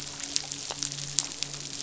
{"label": "biophony, midshipman", "recorder": "SoundTrap 500"}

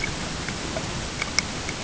{"label": "ambient", "recorder": "HydroMoth"}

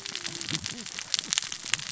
{"label": "biophony, cascading saw", "recorder": "SoundTrap 600 or HydroMoth"}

